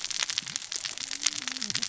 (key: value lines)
label: biophony, cascading saw
recorder: SoundTrap 600 or HydroMoth